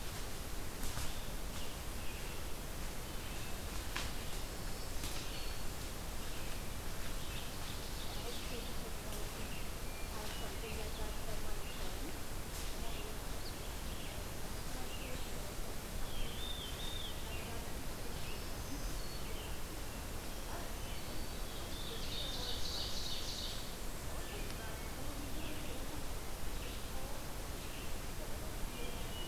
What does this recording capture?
Red-eyed Vireo, Black-throated Green Warbler, Ovenbird, Black-throated Blue Warbler, Hermit Thrush